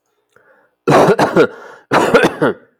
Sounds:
Cough